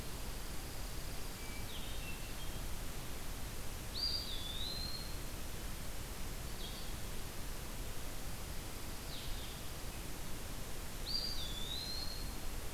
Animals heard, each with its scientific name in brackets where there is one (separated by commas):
Hermit Thrush (Catharus guttatus), Blue-headed Vireo (Vireo solitarius), Brown Creeper (Certhia americana), Eastern Wood-Pewee (Contopus virens), Dark-eyed Junco (Junco hyemalis)